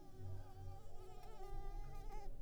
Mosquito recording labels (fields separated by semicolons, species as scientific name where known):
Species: Culex pipiens complex; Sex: female; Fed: unfed; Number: one; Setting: cup